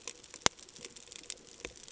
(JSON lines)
{"label": "ambient", "recorder": "HydroMoth"}